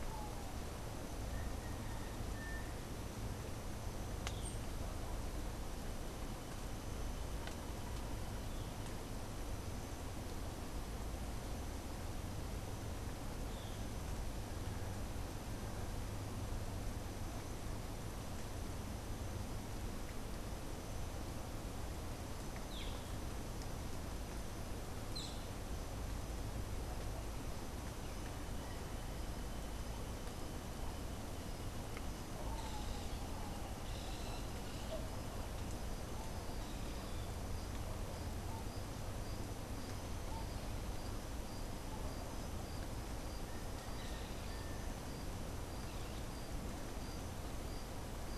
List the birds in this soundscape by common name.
Boat-billed Flycatcher